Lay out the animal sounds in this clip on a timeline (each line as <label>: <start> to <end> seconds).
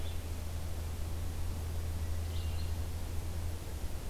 Red-eyed Vireo (Vireo olivaceus): 0.0 to 4.1 seconds